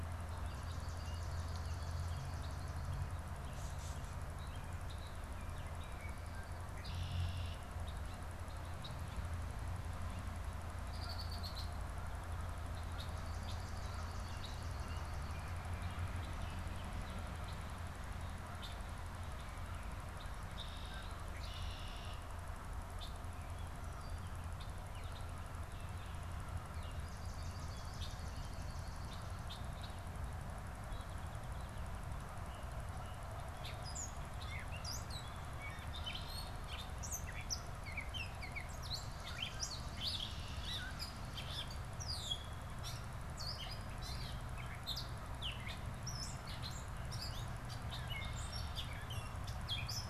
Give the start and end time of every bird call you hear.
[0.12, 3.22] Swamp Sparrow (Melospiza georgiana)
[4.12, 5.22] American Robin (Turdus migratorius)
[6.52, 9.32] Red-winged Blackbird (Agelaius phoeniceus)
[9.92, 10.32] Baltimore Oriole (Icterus galbula)
[10.82, 11.92] Red-winged Blackbird (Agelaius phoeniceus)
[12.62, 13.82] Red-winged Blackbird (Agelaius phoeniceus)
[13.12, 15.32] Swamp Sparrow (Melospiza georgiana)
[18.42, 22.42] Red-winged Blackbird (Agelaius phoeniceus)
[22.82, 23.22] Red-winged Blackbird (Agelaius phoeniceus)
[23.52, 26.52] Gray Catbird (Dumetella carolinensis)
[26.72, 29.92] Swamp Sparrow (Melospiza georgiana)
[30.42, 32.22] Song Sparrow (Melospiza melodia)
[33.52, 50.09] Gray Catbird (Dumetella carolinensis)

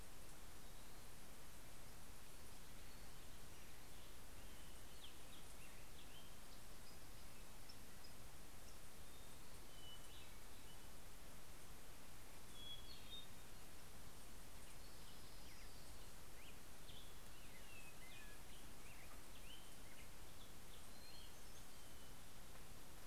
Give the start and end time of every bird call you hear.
[2.56, 8.76] Black-headed Grosbeak (Pheucticus melanocephalus)
[8.96, 10.86] Hermit Thrush (Catharus guttatus)
[11.96, 13.96] Hermit Thrush (Catharus guttatus)
[14.36, 16.75] Orange-crowned Warbler (Leiothlypis celata)
[16.05, 21.66] Black-headed Grosbeak (Pheucticus melanocephalus)
[20.55, 22.25] Hermit Thrush (Catharus guttatus)

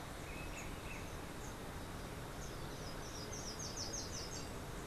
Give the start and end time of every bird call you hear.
[2.60, 4.60] Slate-throated Redstart (Myioborus miniatus)

